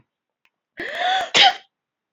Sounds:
Sneeze